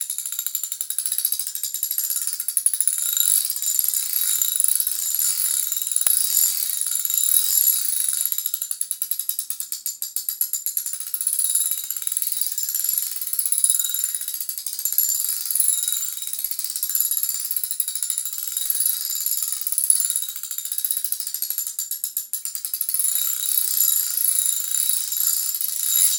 Is the wind howling?
no